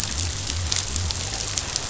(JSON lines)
{"label": "biophony", "recorder": "SoundTrap 500"}